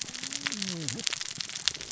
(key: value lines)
label: biophony, cascading saw
recorder: SoundTrap 600 or HydroMoth